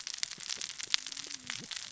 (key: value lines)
label: biophony, cascading saw
recorder: SoundTrap 600 or HydroMoth